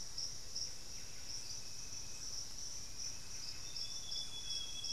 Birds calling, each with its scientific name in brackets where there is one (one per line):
Amazonian Grosbeak (Cyanoloxia rothschildii)
Buff-breasted Wren (Cantorchilus leucotis)